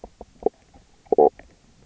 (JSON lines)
{"label": "biophony, knock croak", "recorder": "SoundTrap 300"}